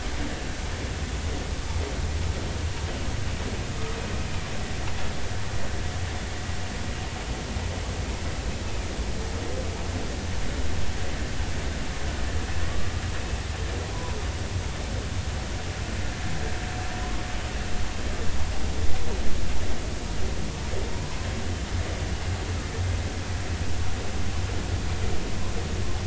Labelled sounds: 12.7	13.0	humpback whale, 1.1 to 1.3 kHz

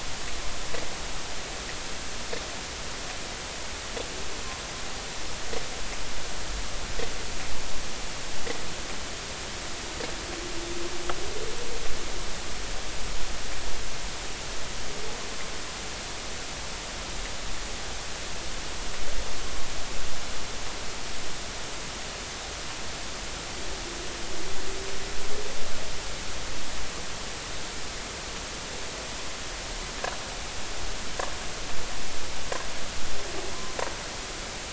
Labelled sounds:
33.5	33.8	humpback whale, 0.93 to 1.1 kHz

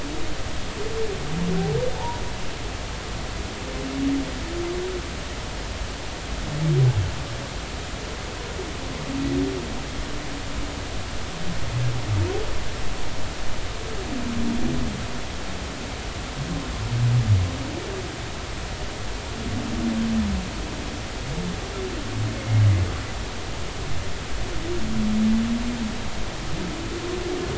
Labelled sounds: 22.4	22.6	humpback whale, 2.0 to 2.2 kHz

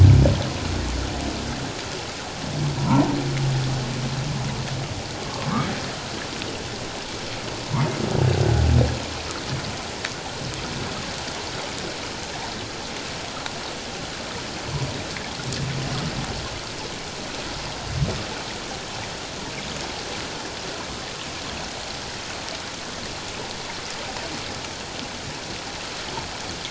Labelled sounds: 2.8	3.1	humpback whale, 0.81 to 1.4 kHz
5.2	5.5	humpback whale, 1.0 to 1.2 kHz

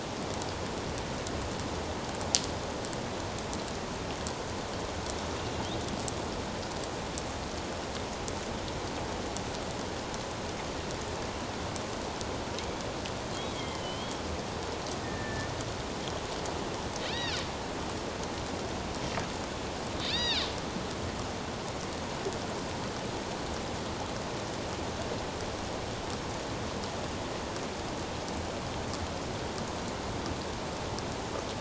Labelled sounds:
13.3	14.2	killer whale, northern resident, A clan, AB subclan, 2.0 to 3.5 kHz
15.0	15.5	killer whale, northern resident, A clan, AB subclan, 1.7 to 2.0 kHz
17.1	17.4	killer whale, northern resident, A clan, AB subclan, 1.6 to 5.0 kHz
20.0	20.5	killer whale, northern resident, A clan, AB subclan, 1.6 to 5.8 kHz

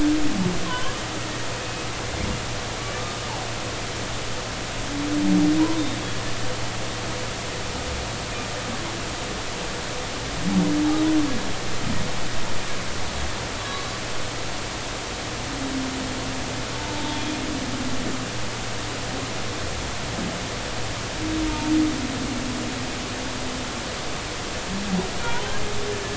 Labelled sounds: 0.7	1.9	humpback whale, 0.93 to 2.6 kHz
3.0	3.2	humpback whale, 1.2 to 1.3 kHz
5.6	5.8	humpback whale, 0.90 to 1.1 kHz
13.6	13.9	humpback whale, 1.0 to 1.2 kHz
16.8	17.4	humpback whale, 0.83 to 3.4 kHz

